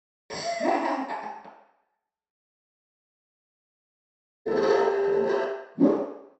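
At 0.28 seconds, laughter can be heard. After that, at 4.45 seconds, you can hear furniture moving. Next, at 5.75 seconds, whooshing is heard.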